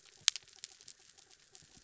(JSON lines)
{"label": "anthrophony, mechanical", "recorder": "SoundTrap 300"}